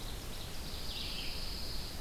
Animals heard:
Ovenbird (Seiurus aurocapilla), Red-eyed Vireo (Vireo olivaceus), Pine Warbler (Setophaga pinus)

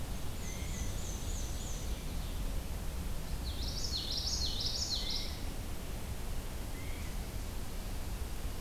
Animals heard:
Black-and-white Warbler (Mniotilta varia), Ovenbird (Seiurus aurocapilla), Common Yellowthroat (Geothlypis trichas), Blue Jay (Cyanocitta cristata)

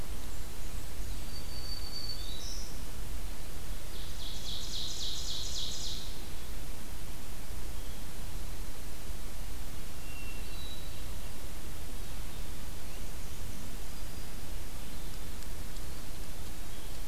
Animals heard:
Ovenbird (Seiurus aurocapilla), Black-throated Green Warbler (Setophaga virens), Black-and-white Warbler (Mniotilta varia), Hermit Thrush (Catharus guttatus)

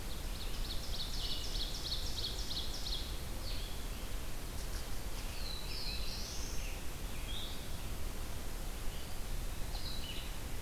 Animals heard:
Ovenbird (Seiurus aurocapilla), Black-throated Blue Warbler (Setophaga caerulescens), Red-eyed Vireo (Vireo olivaceus)

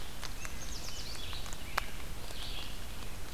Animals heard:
Red-eyed Vireo (Vireo olivaceus), Yellow Warbler (Setophaga petechia)

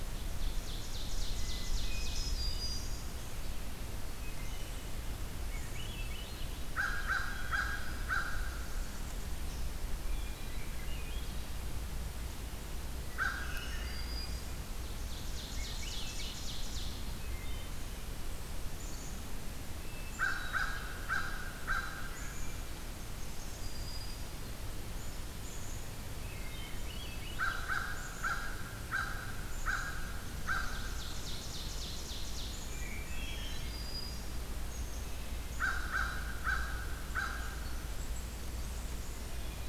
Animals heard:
Blackburnian Warbler (Setophaga fusca), Swainson's Thrush (Catharus ustulatus), Black-capped Chickadee (Poecile atricapillus), unidentified call, Black-throated Green Warbler (Setophaga virens), American Crow (Corvus brachyrhynchos), Hermit Thrush (Catharus guttatus), Ovenbird (Seiurus aurocapilla), Wood Thrush (Hylocichla mustelina)

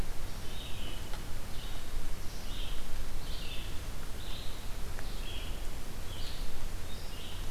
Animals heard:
Red-eyed Vireo (Vireo olivaceus)

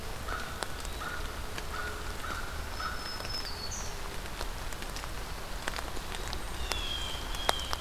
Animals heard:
Eastern Wood-Pewee (Contopus virens), Pine Warbler (Setophaga pinus), Black-throated Green Warbler (Setophaga virens), American Crow (Corvus brachyrhynchos), Blue Jay (Cyanocitta cristata)

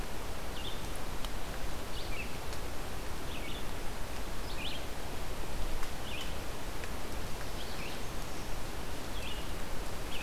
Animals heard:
Red-eyed Vireo (Vireo olivaceus)

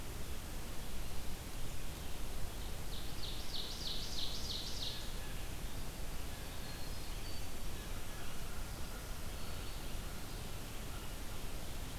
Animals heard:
Winter Wren (Troglodytes hiemalis), Ovenbird (Seiurus aurocapilla), American Crow (Corvus brachyrhynchos), Blue Jay (Cyanocitta cristata)

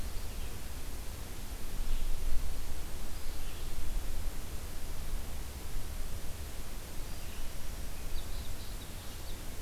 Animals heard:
unidentified call, Red-eyed Vireo (Vireo olivaceus)

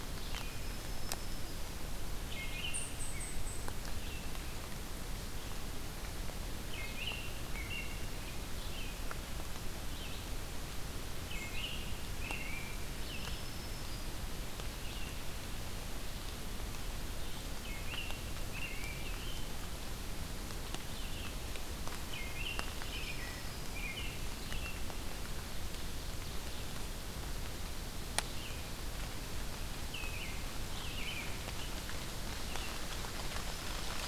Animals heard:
Ovenbird (Seiurus aurocapilla), Red-eyed Vireo (Vireo olivaceus), American Robin (Turdus migratorius), Black-throated Green Warbler (Setophaga virens), unidentified call

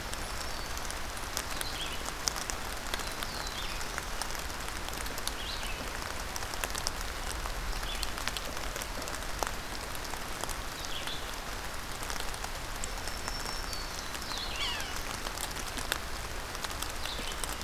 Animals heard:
Red-eyed Vireo (Vireo olivaceus), Yellow-bellied Sapsucker (Sphyrapicus varius), Black-throated Blue Warbler (Setophaga caerulescens), Black-throated Green Warbler (Setophaga virens)

